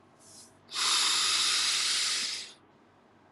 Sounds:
Sniff